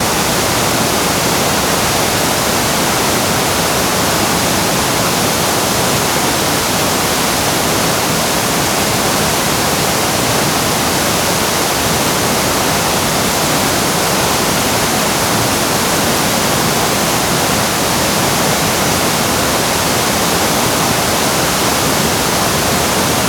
Is the static constant?
yes